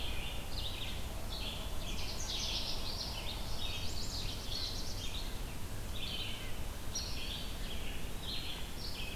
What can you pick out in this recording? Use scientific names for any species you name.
Vireo olivaceus, Cardellina canadensis, Setophaga pensylvanica, Setophaga caerulescens, Contopus virens